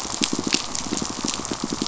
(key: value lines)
label: biophony, pulse
recorder: SoundTrap 500